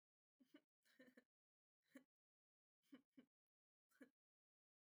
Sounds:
Laughter